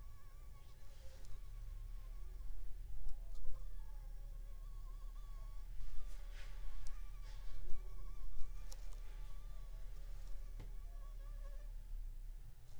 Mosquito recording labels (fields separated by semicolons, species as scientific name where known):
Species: Anopheles funestus s.s.; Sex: female; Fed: unfed; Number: one; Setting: cup